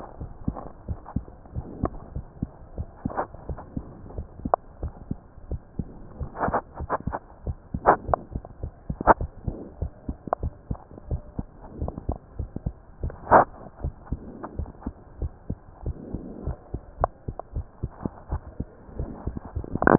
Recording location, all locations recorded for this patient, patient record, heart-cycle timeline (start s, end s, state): mitral valve (MV)
aortic valve (AV)+pulmonary valve (PV)+tricuspid valve (TV)+mitral valve (MV)
#Age: Child
#Sex: Female
#Height: 119.0 cm
#Weight: 19.8 kg
#Pregnancy status: False
#Murmur: Absent
#Murmur locations: nan
#Most audible location: nan
#Systolic murmur timing: nan
#Systolic murmur shape: nan
#Systolic murmur grading: nan
#Systolic murmur pitch: nan
#Systolic murmur quality: nan
#Diastolic murmur timing: nan
#Diastolic murmur shape: nan
#Diastolic murmur grading: nan
#Diastolic murmur pitch: nan
#Diastolic murmur quality: nan
#Outcome: Normal
#Campaign: 2015 screening campaign
0.00	0.18	diastole
0.18	0.32	S1
0.32	0.44	systole
0.44	0.56	S2
0.56	0.86	diastole
0.86	0.98	S1
0.98	1.12	systole
1.12	1.24	S2
1.24	1.54	diastole
1.54	1.66	S1
1.66	1.76	systole
1.76	1.90	S2
1.90	2.14	diastole
2.14	2.26	S1
2.26	2.38	systole
2.38	2.50	S2
2.50	2.76	diastole
2.76	2.88	S1
2.88	3.04	systole
3.04	3.16	S2
3.16	3.46	diastole
3.46	3.60	S1
3.60	3.76	systole
3.76	3.86	S2
3.86	4.12	diastole
4.12	4.26	S1
4.26	4.40	systole
4.40	4.54	S2
4.54	4.80	diastole
4.80	4.94	S1
4.94	5.08	systole
5.08	5.20	S2
5.20	5.48	diastole
5.48	5.62	S1
5.62	5.78	systole
5.78	5.88	S2
5.88	6.18	diastole
6.18	6.30	S1
6.30	6.42	systole
6.42	6.56	S2
6.56	6.78	diastole
6.78	6.90	S1
6.90	7.06	systole
7.06	7.18	S2
7.18	7.46	diastole
7.46	7.58	S1
7.58	7.73	systole
7.73	7.82	S2
7.82	8.06	diastole
8.06	8.18	S1
8.18	8.32	systole
8.32	8.40	S2
8.40	8.61	diastole
8.61	8.70	S1
8.70	8.88	systole
8.88	8.94	S2
8.94	9.18	diastole
9.18	9.28	S1
9.28	9.42	systole
9.42	9.52	S2
9.52	9.80	diastole
9.80	9.91	S1
9.91	10.08	systole
10.08	10.16	S2
10.16	10.42	diastole
10.42	10.56	S1
10.56	10.70	systole
10.70	10.80	S2
10.80	11.06	diastole
11.06	11.22	S1
11.22	11.38	systole
11.38	11.48	S2
11.48	11.76	diastole
11.76	11.92	S1
11.92	12.04	systole
12.04	12.16	S2
12.16	12.38	diastole
12.38	12.52	S1
12.52	12.64	systole
12.64	12.76	S2
12.76	13.02	diastole
13.02	13.16	S1
13.16	13.32	systole
13.32	13.48	S2
13.48	13.80	diastole
13.80	13.96	S1
13.96	14.08	systole
14.08	14.22	S2
14.22	14.54	diastole
14.54	14.72	S1
14.72	14.86	systole
14.86	14.94	S2
14.94	15.18	diastole
15.18	15.34	S1
15.34	15.50	systole
15.50	15.58	S2
15.58	15.86	diastole
15.86	16.00	S1
16.00	16.13	systole
16.13	16.20	S2
16.20	16.45	diastole
16.45	16.56	S1
16.56	16.73	systole
16.73	16.81	S2
16.81	17.00	diastole